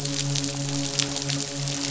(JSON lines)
{"label": "biophony, midshipman", "recorder": "SoundTrap 500"}